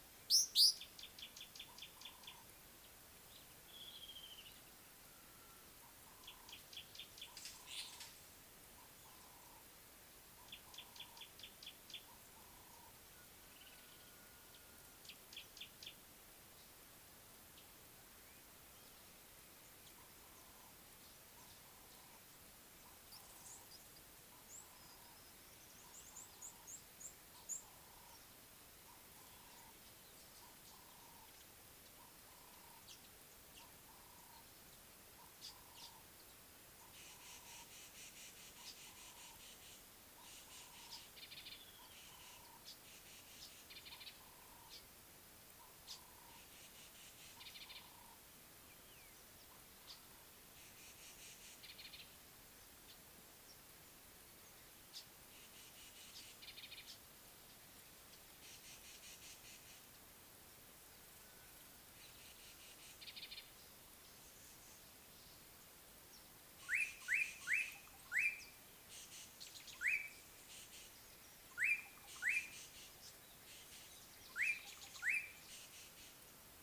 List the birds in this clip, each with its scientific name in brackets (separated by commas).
Ring-necked Dove (Streptopelia capicola), Slate-colored Boubou (Laniarius funebris), Red-cheeked Cordonbleu (Uraeginthus bengalus), Gray-backed Camaroptera (Camaroptera brevicaudata), Rattling Cisticola (Cisticola chiniana)